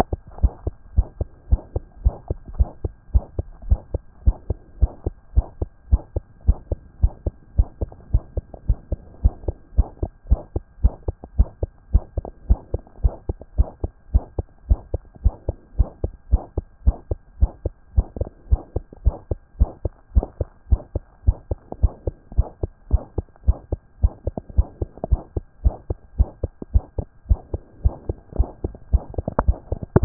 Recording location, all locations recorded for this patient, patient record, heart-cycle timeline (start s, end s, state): pulmonary valve (PV)
aortic valve (AV)+pulmonary valve (PV)+pulmonary valve (PV)+tricuspid valve (TV)+tricuspid valve (TV)+mitral valve (MV)
#Age: Child
#Sex: Male
#Height: 130.0 cm
#Weight: 25.8 kg
#Pregnancy status: False
#Murmur: Present
#Murmur locations: aortic valve (AV)+pulmonary valve (PV)+tricuspid valve (TV)
#Most audible location: pulmonary valve (PV)
#Systolic murmur timing: Early-systolic
#Systolic murmur shape: Decrescendo
#Systolic murmur grading: I/VI
#Systolic murmur pitch: Low
#Systolic murmur quality: Blowing
#Diastolic murmur timing: nan
#Diastolic murmur shape: nan
#Diastolic murmur grading: nan
#Diastolic murmur pitch: nan
#Diastolic murmur quality: nan
#Outcome: Abnormal
#Campaign: 2014 screening campaign
0.00	0.12	diastole
0.12	0.24	S1
0.24	0.36	systole
0.36	0.44	S2
0.44	0.62	diastole
0.62	0.74	S1
0.74	0.86	systole
0.86	0.96	S2
0.96	1.14	diastole
1.14	1.26	S1
1.26	1.38	systole
1.38	1.46	S2
1.46	1.66	diastole
1.66	1.78	S1
1.78	1.90	systole
1.90	1.98	S2
1.98	2.20	diastole
2.20	2.32	S1
2.32	2.42	systole
2.42	2.52	S2
2.52	2.72	diastole
2.72	2.84	S1
2.84	2.96	systole
2.96	3.04	S2
3.04	3.22	diastole
3.22	3.34	S1
3.34	3.48	systole
3.48	3.56	S2
3.56	3.76	diastole
3.76	3.88	S1
3.88	4.00	systole
4.00	4.08	S2
4.08	4.30	diastole
4.30	4.42	S1
4.42	4.52	systole
4.52	4.62	S2
4.62	4.82	diastole
4.82	4.94	S1
4.94	5.06	systole
5.06	5.16	S2
5.16	5.34	diastole
5.34	5.46	S1
5.46	5.58	systole
5.58	5.66	S2
5.66	5.86	diastole
5.86	5.98	S1
5.98	6.08	systole
6.08	6.18	S2
6.18	6.38	diastole
6.38	6.48	S1
6.48	6.62	systole
6.62	6.70	S2
6.70	6.90	diastole
6.90	7.02	S1
7.02	7.14	systole
7.14	7.24	S2
7.24	7.44	diastole
7.44	7.54	S1
7.54	7.66	systole
7.66	7.74	S2
7.74	7.94	diastole
7.94	8.06	S1
8.06	8.18	systole
8.18	8.28	S2
8.28	8.46	diastole
8.46	8.58	S1
8.58	8.70	systole
8.70	8.80	S2
8.80	8.98	diastole
8.98	9.08	S1
9.08	9.22	systole
9.22	9.30	S2
9.30	9.50	diastole
9.50	9.60	S1
9.60	9.72	systole
9.72	9.82	S2
9.82	10.02	diastole
10.02	10.14	S1
10.14	10.26	systole
10.26	10.34	S2
10.34	10.56	diastole
10.56	10.68	S1
10.68	10.80	systole
10.80	10.90	S2
10.90	11.10	diastole
11.10	11.20	S1
11.20	11.34	systole
11.34	11.42	S2
11.42	11.62	diastole
11.62	11.74	S1
11.74	11.86	systole
11.86	11.96	S2
11.96	12.14	diastole
12.14	12.26	S1
12.26	12.38	systole
12.38	12.48	S2
12.48	12.66	diastole
12.66	12.78	S1
12.78	12.90	systole
12.90	13.00	S2
13.00	13.18	diastole
13.18	13.30	S1
13.30	13.42	systole
13.42	13.52	S2
13.52	13.70	diastole
13.70	13.82	S1
13.82	13.96	systole
13.96	14.06	S2
14.06	14.22	diastole
14.22	14.34	S1
14.34	14.46	systole
14.46	14.54	S2
14.54	14.74	diastole
14.74	14.86	S1
14.86	14.98	systole
14.98	15.06	S2
15.06	15.28	diastole
15.28	15.38	S1
15.38	15.50	systole
15.50	15.60	S2
15.60	15.80	diastole
15.80	15.92	S1
15.92	16.04	systole
16.04	16.12	S2
16.12	16.32	diastole
16.32	16.44	S1
16.44	16.56	systole
16.56	16.66	S2
16.66	16.84	diastole
16.84	16.94	S1
16.94	17.08	systole
17.08	17.16	S2
17.16	17.36	diastole
17.36	17.46	S1
17.46	17.58	systole
17.58	17.68	S2
17.68	17.88	diastole
17.88	17.98	S1
17.98	18.10	systole
18.10	18.20	S2
18.20	18.38	diastole
18.38	18.50	S1
18.50	18.62	systole
18.62	18.72	S2
18.72	18.92	diastole
18.92	19.02	S1
19.02	19.14	systole
19.14	19.24	S2
19.24	19.42	diastole
19.42	19.54	S1
19.54	19.66	systole
19.66	19.76	S2
19.76	19.94	diastole
19.94	20.06	S1
20.06	20.18	systole
20.18	20.28	S2
20.28	20.46	diastole
20.46	20.58	S1
20.58	20.70	systole
20.70	20.80	S2
20.80	21.00	diastole
21.00	21.10	S1
21.10	21.22	systole
21.22	21.32	S2
21.32	21.52	diastole
21.52	21.64	S1
21.64	21.74	systole
21.74	21.84	S2
21.84	22.04	diastole
22.04	22.16	S1
22.16	22.28	systole
22.28	22.38	S2
22.38	22.56	diastole
22.56	22.68	S1
22.68	22.80	systole
22.80	22.90	S2
22.90	23.08	diastole
23.08	23.20	S1
23.20	23.32	systole
23.32	23.42	S2
23.42	23.62	diastole
23.62	23.72	S1
23.72	23.84	systole
23.84	23.94	S2
23.94	24.16	diastole
24.16	24.26	S1
24.26	24.38	systole
24.38	24.48	S2
24.48	24.68	diastole
24.68	24.80	S1
24.80	24.92	systole
24.92	25.00	S2
25.00	25.20	diastole
25.20	25.32	S1
25.32	25.44	systole
25.44	25.54	S2
25.54	25.72	diastole
25.72	25.84	S1
25.84	25.96	systole
25.96	26.06	S2
26.06	26.26	diastole
26.26	26.36	S1
26.36	26.48	systole
26.48	26.58	S2
26.58	26.78	diastole
26.78	26.88	S1
26.88	27.00	systole
27.00	27.10	S2
27.10	27.30	diastole